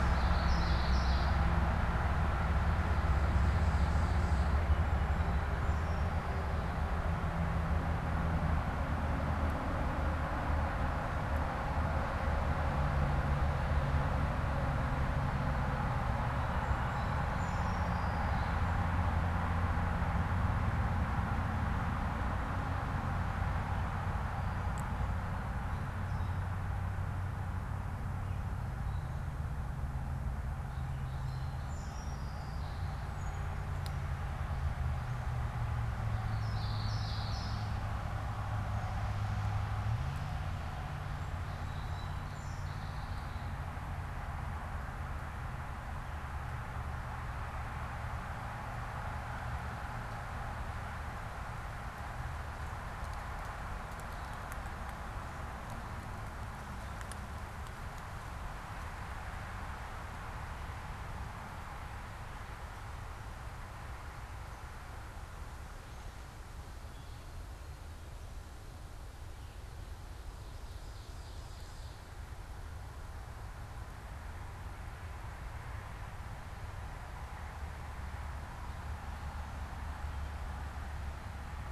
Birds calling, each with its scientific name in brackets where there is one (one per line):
Common Yellowthroat (Geothlypis trichas)
Song Sparrow (Melospiza melodia)
Ovenbird (Seiurus aurocapilla)